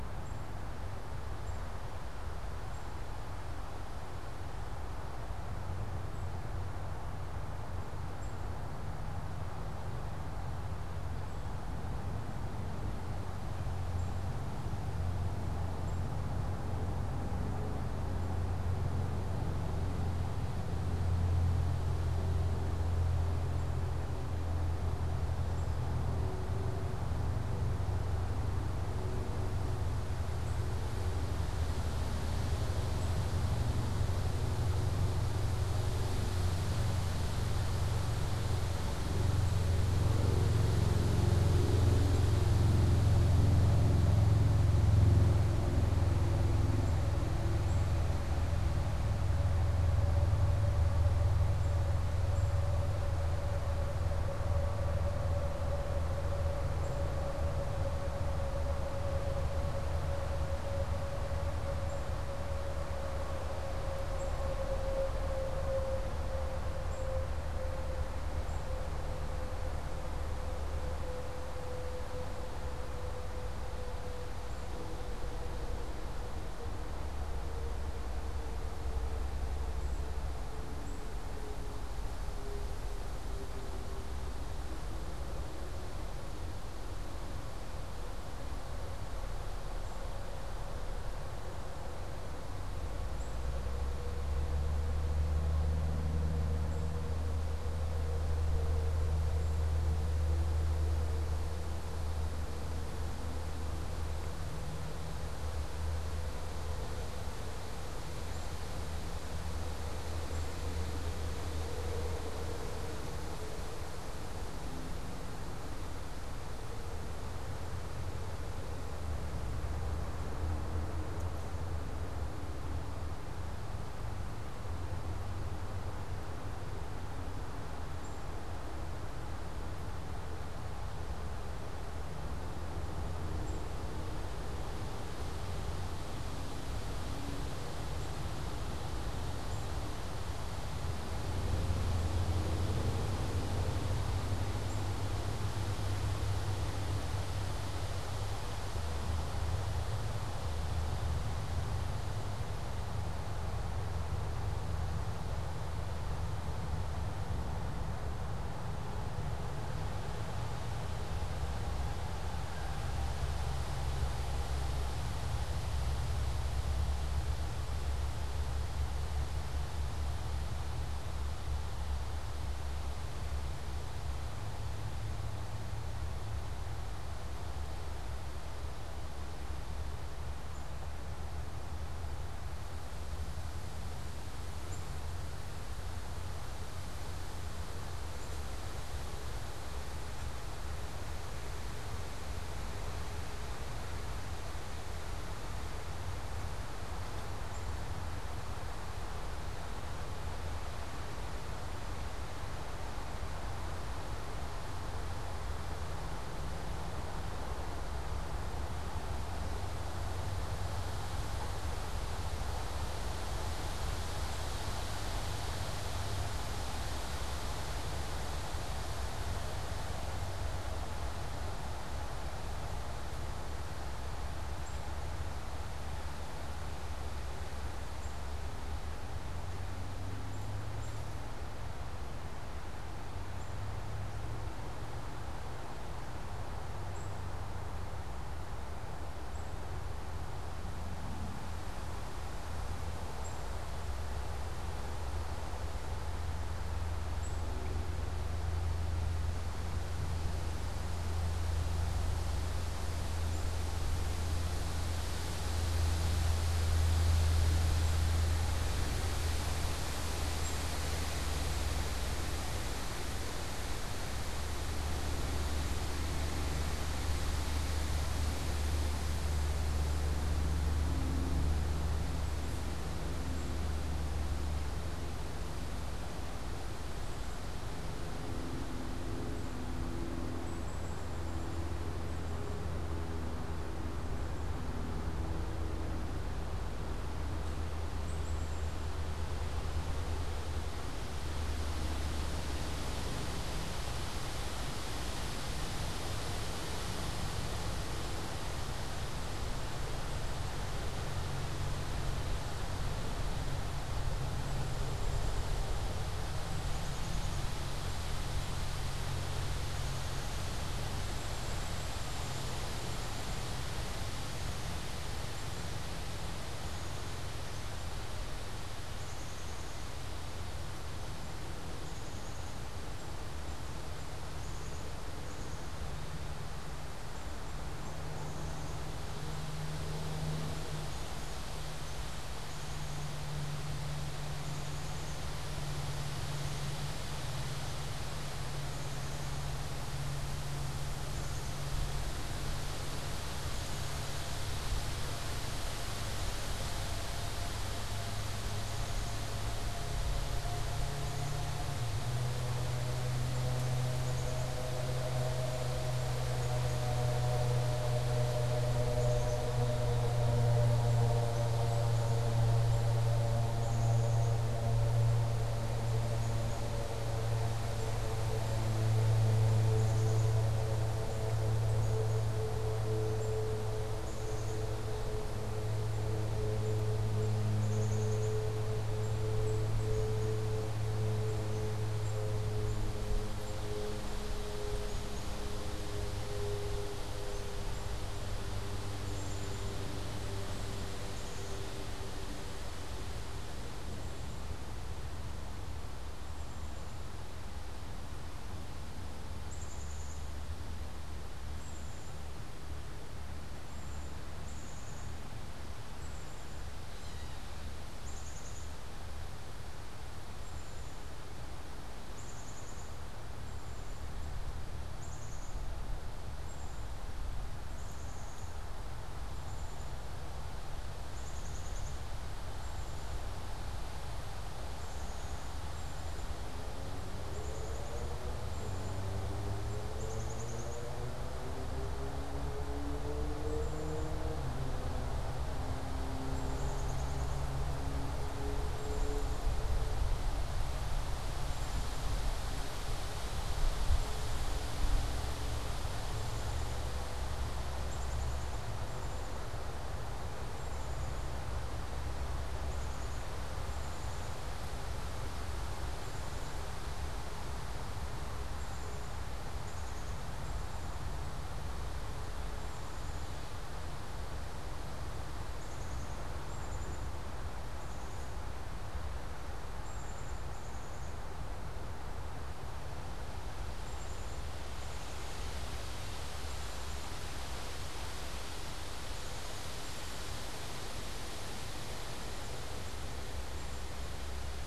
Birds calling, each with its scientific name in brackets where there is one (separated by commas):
Black-capped Chickadee (Poecile atricapillus), unidentified bird